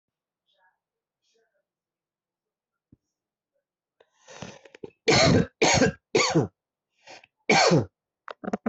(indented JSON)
{
  "expert_labels": [
    {
      "quality": "ok",
      "cough_type": "dry",
      "dyspnea": false,
      "wheezing": false,
      "stridor": false,
      "choking": false,
      "congestion": false,
      "nothing": true,
      "diagnosis": "upper respiratory tract infection",
      "severity": "mild"
    }
  ],
  "age": 47,
  "gender": "male",
  "respiratory_condition": true,
  "fever_muscle_pain": false,
  "status": "COVID-19"
}